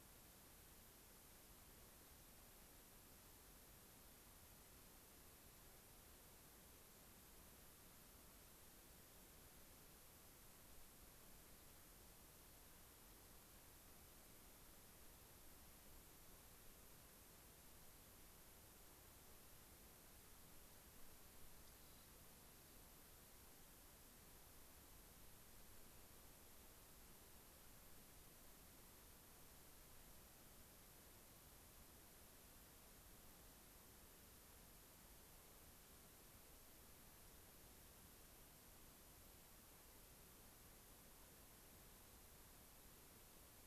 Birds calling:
Rock Wren (Salpinctes obsoletus)

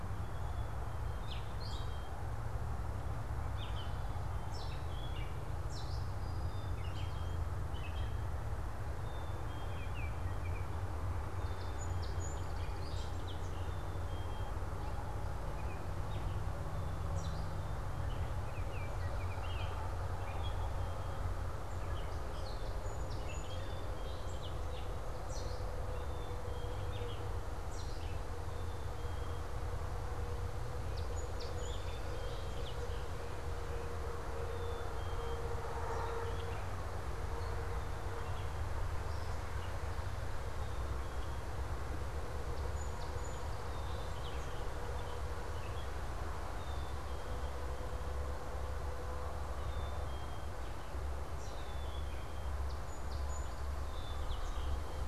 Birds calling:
Gray Catbird (Dumetella carolinensis)
Baltimore Oriole (Icterus galbula)
Brown-headed Cowbird (Molothrus ater)
Black-capped Chickadee (Poecile atricapillus)
Song Sparrow (Melospiza melodia)

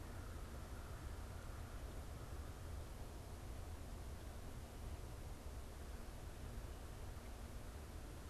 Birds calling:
American Crow (Corvus brachyrhynchos)

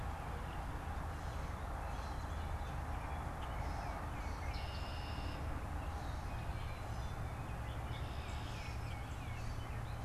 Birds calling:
Gray Catbird (Dumetella carolinensis)
Tufted Titmouse (Baeolophus bicolor)
Red-winged Blackbird (Agelaius phoeniceus)

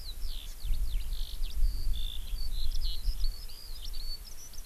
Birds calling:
Hawaii Amakihi (Chlorodrepanis virens)
Eurasian Skylark (Alauda arvensis)

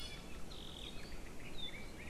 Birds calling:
Iiwi (Drepanis coccinea)

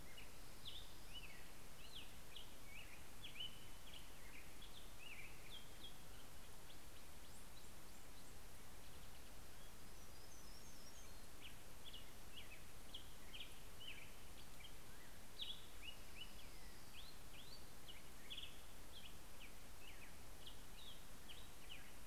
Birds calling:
Hermit Warbler (Setophaga occidentalis)
Orange-crowned Warbler (Leiothlypis celata)
Black-headed Grosbeak (Pheucticus melanocephalus)

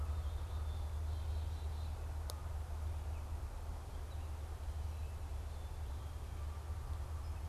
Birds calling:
Black-capped Chickadee (Poecile atricapillus)

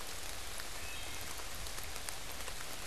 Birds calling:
Wood Thrush (Hylocichla mustelina)

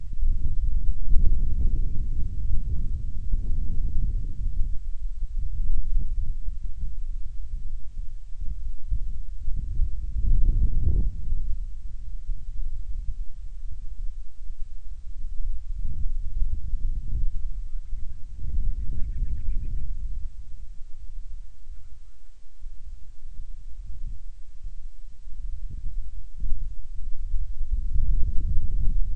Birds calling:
Band-rumped Storm-Petrel (Hydrobates castro)

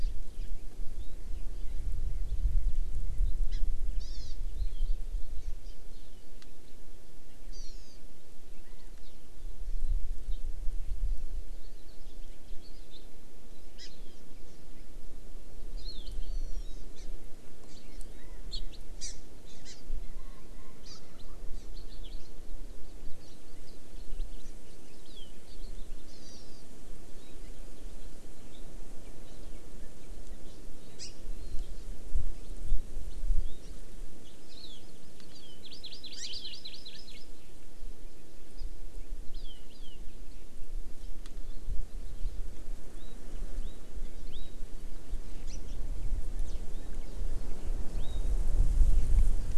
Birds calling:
House Finch (Haemorhous mexicanus)
Hawaii Amakihi (Chlorodrepanis virens)
Hawaiian Hawk (Buteo solitarius)

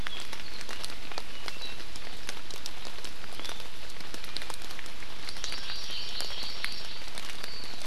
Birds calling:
Hawaii Amakihi (Chlorodrepanis virens)

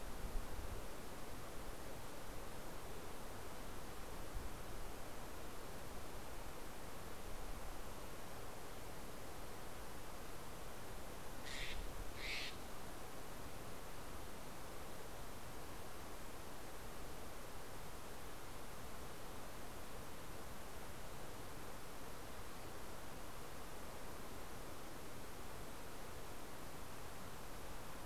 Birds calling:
Steller's Jay (Cyanocitta stelleri)

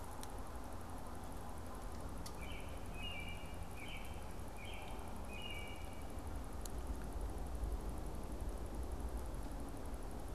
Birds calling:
American Robin (Turdus migratorius)

